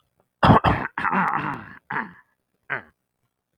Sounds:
Throat clearing